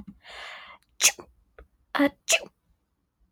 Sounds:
Sneeze